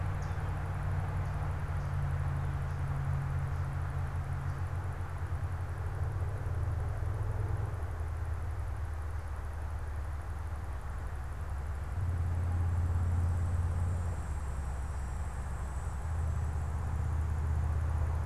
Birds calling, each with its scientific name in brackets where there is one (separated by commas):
Hooded Warbler (Setophaga citrina)